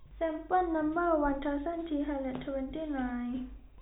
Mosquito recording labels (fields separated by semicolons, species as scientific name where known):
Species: no mosquito; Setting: cup